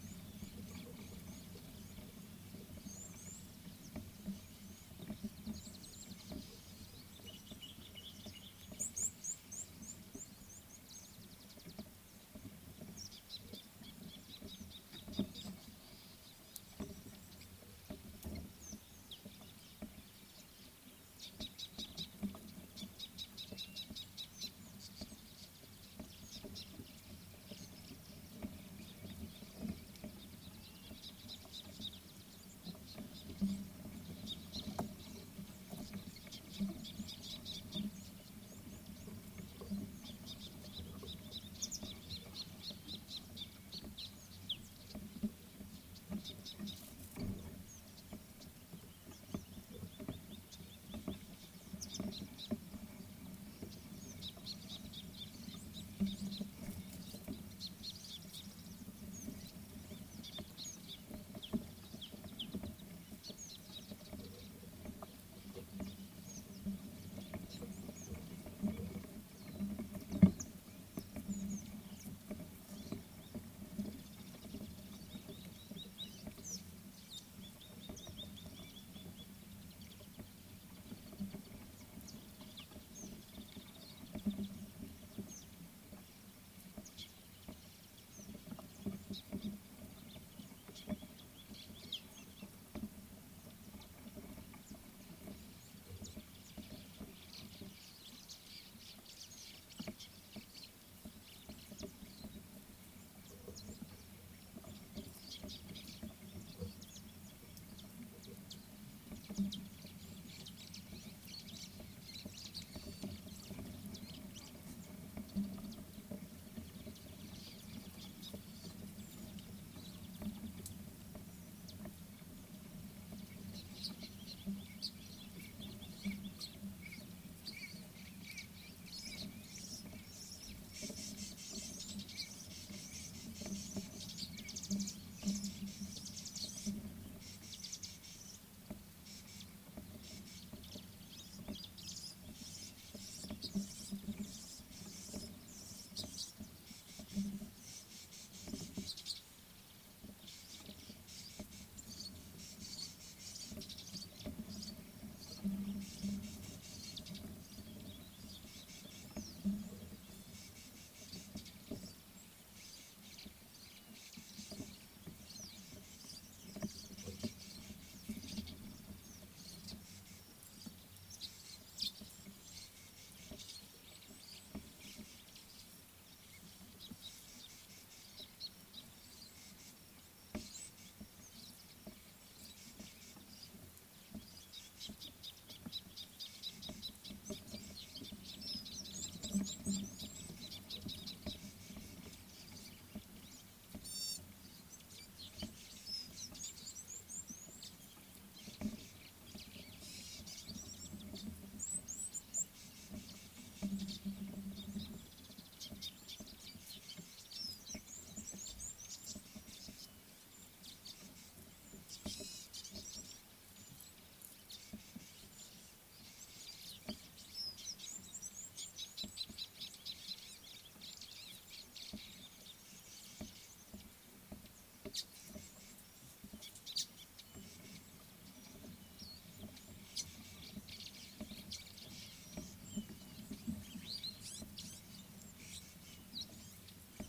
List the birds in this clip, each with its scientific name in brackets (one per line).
Red-cheeked Cordonbleu (Uraeginthus bengalus)
Tawny-flanked Prinia (Prinia subflava)
White-browed Sparrow-Weaver (Plocepasser mahali)
Chestnut Weaver (Ploceus rubiginosus)
Scarlet-chested Sunbird (Chalcomitra senegalensis)
Gray-backed Camaroptera (Camaroptera brevicaudata)
Rattling Cisticola (Cisticola chiniana)
Gabar Goshawk (Micronisus gabar)
White-bellied Go-away-bird (Corythaixoides leucogaster)